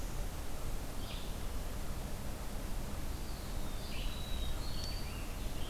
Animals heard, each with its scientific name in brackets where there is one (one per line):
Red-eyed Vireo (Vireo olivaceus)
Black-throated Blue Warbler (Setophaga caerulescens)
Eastern Wood-Pewee (Contopus virens)
American Robin (Turdus migratorius)